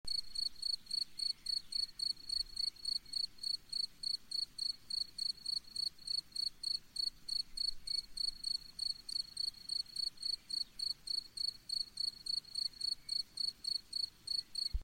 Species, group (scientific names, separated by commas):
Gryllus campestris, Orthoptera